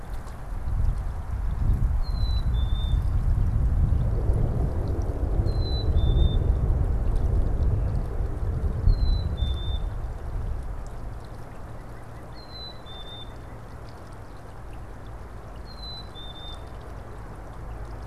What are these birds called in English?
Black-capped Chickadee, White-breasted Nuthatch